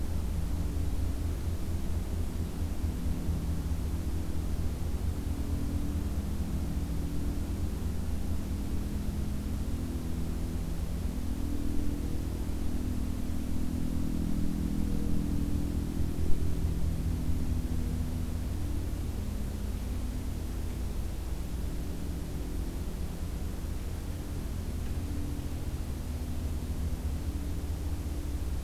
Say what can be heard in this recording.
forest ambience